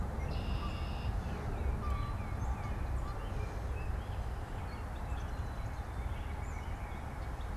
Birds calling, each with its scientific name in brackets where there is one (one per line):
White-breasted Nuthatch (Sitta carolinensis)
Gray Catbird (Dumetella carolinensis)
Black-capped Chickadee (Poecile atricapillus)
Red-winged Blackbird (Agelaius phoeniceus)
Tufted Titmouse (Baeolophus bicolor)